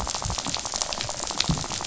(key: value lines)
label: biophony, rattle
recorder: SoundTrap 500